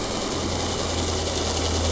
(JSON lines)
{"label": "anthrophony, boat engine", "recorder": "SoundTrap 300"}